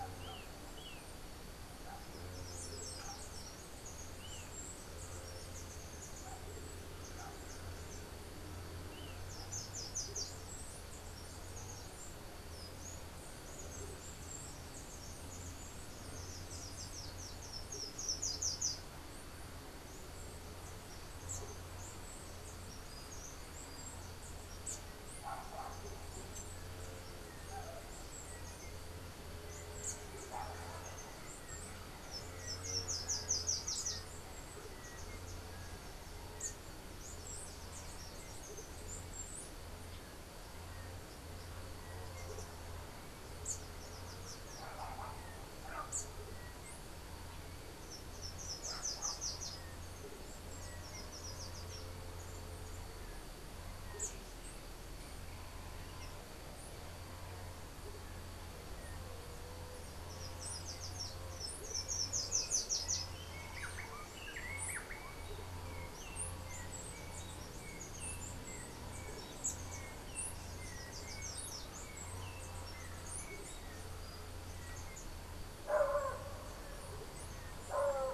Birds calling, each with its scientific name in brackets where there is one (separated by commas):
Yellow-backed Oriole (Icterus chrysater), Whiskered Wren (Pheugopedius mystacalis), Slate-throated Redstart (Myioborus miniatus), unidentified bird